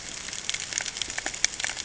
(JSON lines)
{"label": "ambient", "recorder": "HydroMoth"}